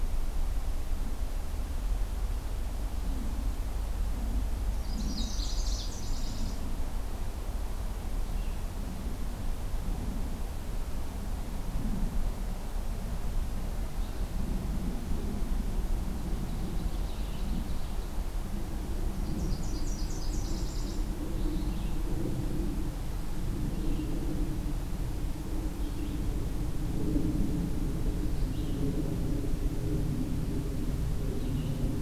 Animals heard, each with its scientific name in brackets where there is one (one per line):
Red-eyed Vireo (Vireo olivaceus)
Nashville Warbler (Leiothlypis ruficapilla)
Ovenbird (Seiurus aurocapilla)